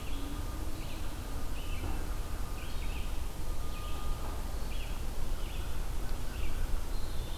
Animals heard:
Red-eyed Vireo (Vireo olivaceus)
Eastern Wood-Pewee (Contopus virens)
American Crow (Corvus brachyrhynchos)

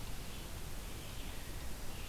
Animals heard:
Red-eyed Vireo (Vireo olivaceus)

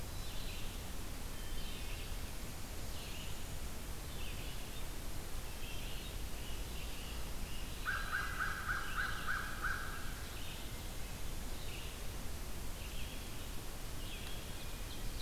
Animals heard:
Ovenbird (Seiurus aurocapilla)
Hermit Thrush (Catharus guttatus)
American Crow (Corvus brachyrhynchos)
Great Crested Flycatcher (Myiarchus crinitus)
Black-throated Green Warbler (Setophaga virens)
Red-eyed Vireo (Vireo olivaceus)

